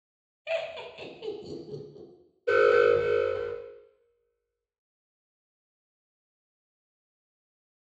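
First, laughter is heard. Then you can hear an alarm.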